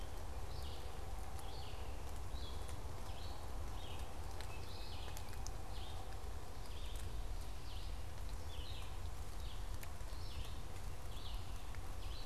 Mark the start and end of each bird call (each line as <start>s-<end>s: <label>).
0.0s-12.3s: Red-eyed Vireo (Vireo olivaceus)
4.3s-5.7s: Tufted Titmouse (Baeolophus bicolor)